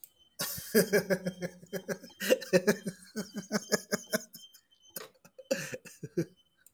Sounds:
Laughter